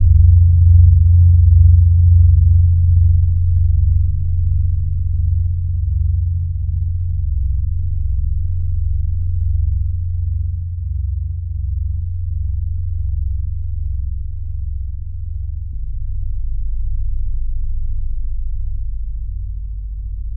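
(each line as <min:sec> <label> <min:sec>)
0:00.0 A deep, frequent sound gradually getting quieter. 0:20.4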